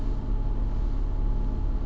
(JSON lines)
{"label": "anthrophony, boat engine", "recorder": "SoundTrap 300"}